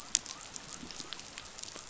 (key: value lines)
label: biophony
recorder: SoundTrap 500